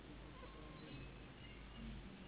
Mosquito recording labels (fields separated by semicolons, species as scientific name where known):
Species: Anopheles gambiae s.s.; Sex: female; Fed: unfed; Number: one; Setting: insect culture